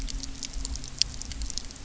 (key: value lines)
label: anthrophony, boat engine
recorder: SoundTrap 300